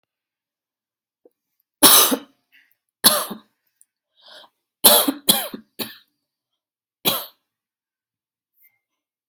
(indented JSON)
{
  "expert_labels": [
    {
      "quality": "good",
      "cough_type": "dry",
      "dyspnea": false,
      "wheezing": false,
      "stridor": false,
      "choking": false,
      "congestion": false,
      "nothing": true,
      "diagnosis": "upper respiratory tract infection",
      "severity": "mild"
    }
  ],
  "age": 39,
  "gender": "female",
  "respiratory_condition": false,
  "fever_muscle_pain": false,
  "status": "symptomatic"
}